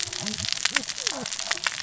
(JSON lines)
{"label": "biophony, cascading saw", "recorder": "SoundTrap 600 or HydroMoth"}